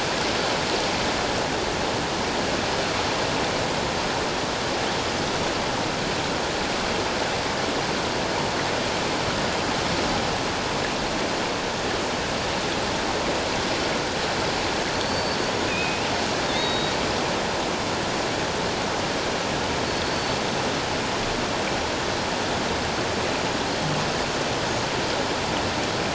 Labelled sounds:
15.0	16.1	killer whale, offshore, 2.4 to 6.8 kHz
16.5	16.9	killer whale, offshore, 3.4 to 4.5 kHz
19.9	20.4	killer whale, offshore, 4.3 to 4.5 kHz

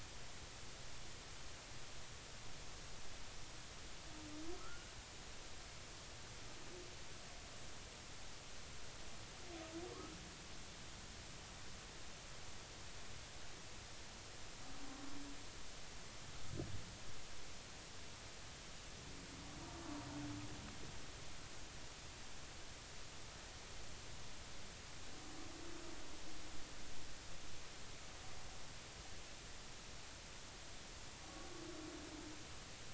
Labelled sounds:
4.6	4.9	humpback whale, 1.2 to 1.5 kHz

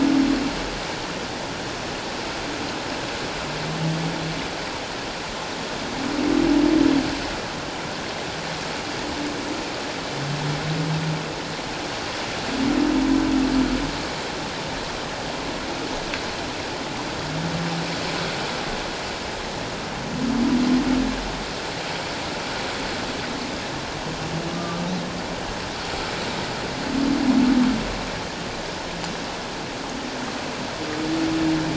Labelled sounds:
24.5	24.8	humpback whale, 1.1 to 1.2 kHz

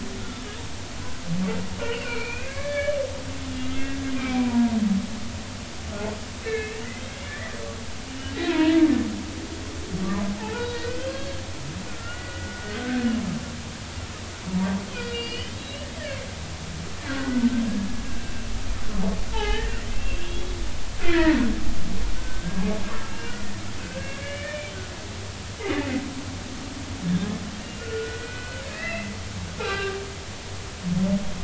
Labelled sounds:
1.8	3.0	humpback whale, 1.3 to 4.7 kHz
3.8	4.9	humpback whale, 0.90 to 2.5 kHz
6.4	7.5	humpback whale, 1.7 to 2.3 kHz
8.5	8.9	humpback whale, 0.90 to 3.8 kHz
10.3	13.1	humpback whale, 0.80 to 3.9 kHz
14.9	15.9	humpback whale, 2.3 to 5.0 kHz
17.0	17.6	humpback whale, 1.3 to 2.1 kHz
18.0	18.4	humpback whale, 1.5 to 2.8 kHz
19.3	20.6	humpback whale, 0.80 to 4.0 kHz
21.0	21.4	humpback whale, 1.6 to 3.1 kHz
22.2	23.5	humpback whale, 1.4 to 3.0 kHz
23.8	24.7	humpback whale, 1.5 to 2.5 kHz
27.1	29.1	humpback whale, 1.4 to 4.1 kHz
29.6	30.0	humpback whale, 0.80 to 4.0 kHz

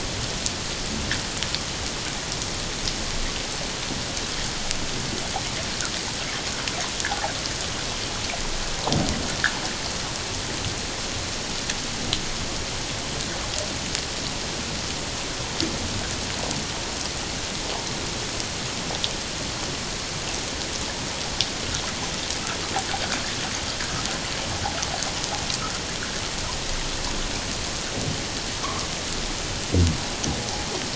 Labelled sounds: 28.6	28.9	humpback whale, 1.0 to 1.3 kHz

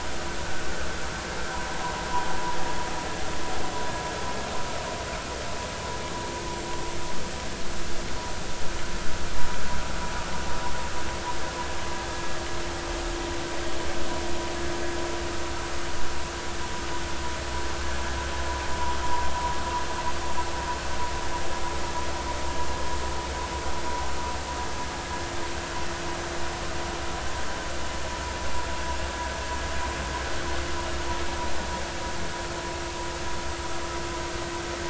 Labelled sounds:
0.4	0.7	vessel noise, 1.4 to 1.6 kHz

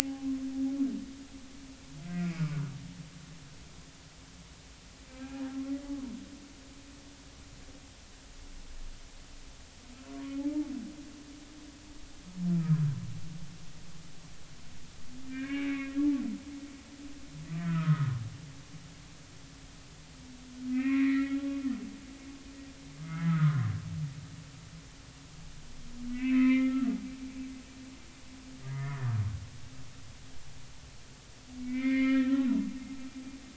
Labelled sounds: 2.0	2.6	humpback whale, 1.1 to 2.6 kHz
5.9	6.1	humpback whale, 0.90 to 1.2 kHz
10.1	10.4	humpback whale, 1.1 to 1.2 kHz
12.5	12.8	humpback whale, 1.2 to 1.4 kHz
15.3	16.0	humpback whale, 1.5 to 2.8 kHz
17.6	18.2	humpback whale, 1.0 to 1.6 kHz
20.7	21.4	humpback whale, 1.2 to 2.7 kHz
23.0	23.7	humpback whale, 0.99 to 1.9 kHz
26.1	26.9	humpback whale, 0.99 to 2.7 kHz
28.6	29.0	humpback whale, 1.1 to 2.2 kHz
31.6	32.5	humpback whale, 1.2 to 4.1 kHz

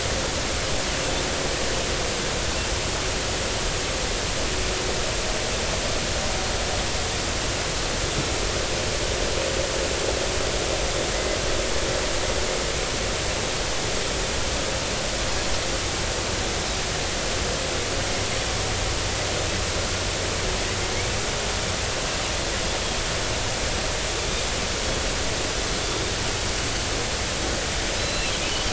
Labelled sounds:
28.0	28.3	Pacific white-sided dolphin, 2.5 to 4.2 kHz

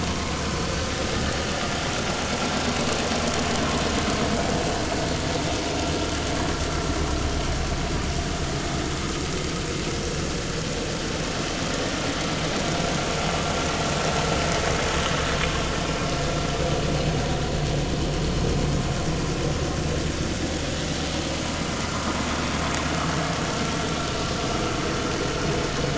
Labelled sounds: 21.9	22.1	vessel noise, 0.99 to 1.4 kHz

